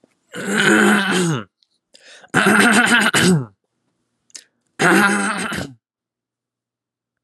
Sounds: Throat clearing